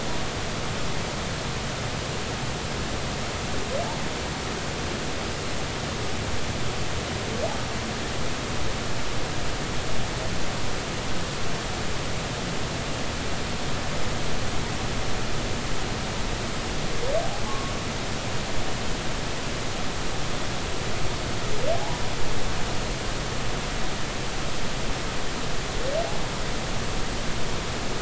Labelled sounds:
17.5	17.7	humpback whale, 1.0 to 1.1 kHz
21.8	22.0	humpback whale, 0.80 to 1.0 kHz

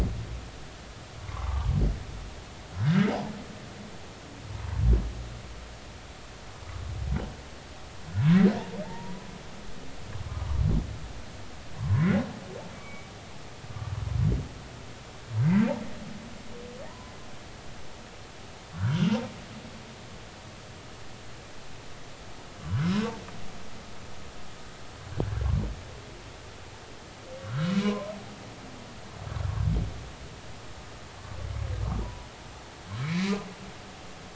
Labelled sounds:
1.3	1.7	humpback whale, 0.80 to 1.3 kHz
2.8	3.1	humpback whale, 1.4 to 1.7 kHz
8.2	9.3	humpback whale, 0.83 to 2.3 kHz
10.3	10.6	humpback whale, 0.90 to 1.3 kHz
11.8	12.1	humpback whale, 0.93 to 1.2 kHz
12.7	13.1	humpback whale, 1.1 to 2.4 kHz
16.9	17.1	humpback whale, 0.90 to 1.1 kHz
18.7	19.2	humpback whale, 0.93 to 1.7 kHz
22.7	23.1	humpback whale, 1.2 to 5.2 kHz
27.5	28.1	humpback whale, 0.93 to 1.7 kHz
32.0	32.3	humpback whale, 0.90 to 1.0 kHz
33.0	33.3	humpback whale, 2.0 to 4.0 kHz

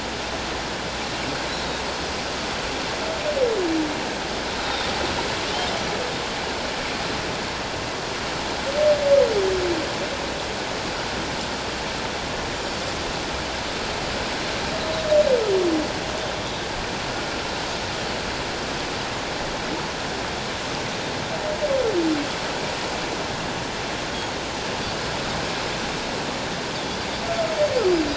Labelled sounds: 1.6	1.8	Pacific white-sided dolphin, 3.7 to 3.9 kHz
4.6	4.9	Pacific white-sided dolphin, 3.5 to 3.8 kHz

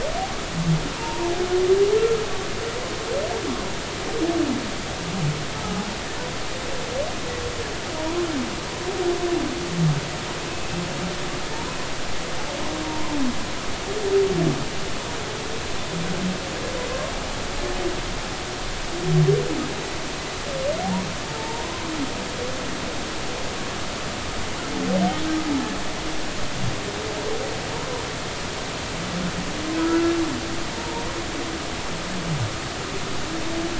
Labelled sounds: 1.0	1.3	humpback whale, 0.86 to 1.1 kHz
21.3	21.7	humpback whale, 0.83 to 1.1 kHz
27.8	28.1	humpback whale, 0.90 to 1.1 kHz
29.8	30.1	humpback whale, 1.2 to 1.5 kHz
30.7	31.0	humpback whale, 0.86 to 0.99 kHz

